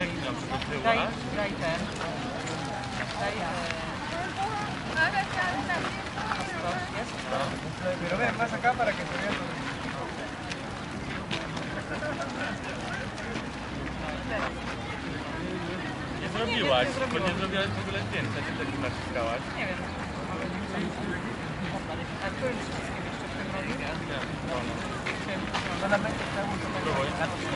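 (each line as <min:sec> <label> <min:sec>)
0:00.0 Footsteps on gravel. 0:27.6
0:00.1 Low background noise of people speaking in Spanish. 0:27.5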